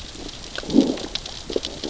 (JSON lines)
{"label": "biophony, growl", "recorder": "SoundTrap 600 or HydroMoth"}